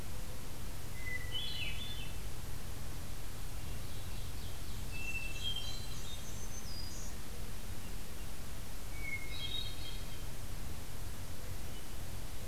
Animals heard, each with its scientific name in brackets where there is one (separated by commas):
Black-and-white Warbler (Mniotilta varia), Black-throated Green Warbler (Setophaga virens), Hermit Thrush (Catharus guttatus), Ovenbird (Seiurus aurocapilla)